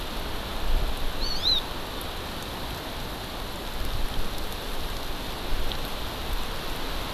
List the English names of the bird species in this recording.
Hawaii Amakihi